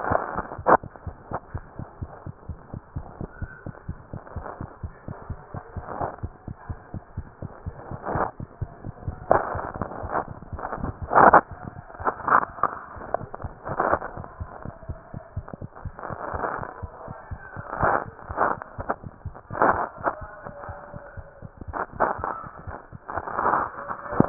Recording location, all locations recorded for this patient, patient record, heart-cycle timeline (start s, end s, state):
mitral valve (MV)
mitral valve (MV)
#Age: Infant
#Sex: Female
#Height: 64.0 cm
#Weight: 8.7 kg
#Pregnancy status: False
#Murmur: Present
#Murmur locations: mitral valve (MV)
#Most audible location: mitral valve (MV)
#Systolic murmur timing: Holosystolic
#Systolic murmur shape: Plateau
#Systolic murmur grading: I/VI
#Systolic murmur pitch: Low
#Systolic murmur quality: Blowing
#Diastolic murmur timing: nan
#Diastolic murmur shape: nan
#Diastolic murmur grading: nan
#Diastolic murmur pitch: nan
#Diastolic murmur quality: nan
#Outcome: Abnormal
#Campaign: 2015 screening campaign
0.00	2.25	unannotated
2.25	2.33	S1
2.33	2.47	systole
2.47	2.55	S2
2.55	2.73	diastole
2.73	2.80	S1
2.80	2.95	systole
2.95	3.00	S2
3.00	3.22	diastole
3.22	3.28	S1
3.28	3.41	systole
3.41	3.47	S2
3.47	3.65	diastole
3.65	3.71	S1
3.71	3.88	systole
3.88	3.94	S2
3.94	4.13	diastole
4.13	4.19	S1
4.19	4.35	systole
4.35	4.41	S2
4.41	4.60	diastole
4.60	4.66	S1
4.66	4.82	systole
4.82	4.88	S2
4.88	5.07	diastole
5.07	5.14	S1
5.14	5.29	systole
5.29	5.34	S2
5.34	5.53	diastole
5.53	5.60	S1
5.60	5.75	systole
5.75	5.80	S2
5.80	6.46	unannotated
6.46	6.54	S1
6.54	6.67	systole
6.67	6.74	S2
6.74	6.92	diastole
6.92	7.00	S1
7.00	7.16	systole
7.16	7.22	S2
7.22	7.42	diastole
7.42	7.48	S1
7.48	7.65	systole
7.65	7.71	S2
7.71	7.90	diastole
7.90	7.97	S1
7.97	24.29	unannotated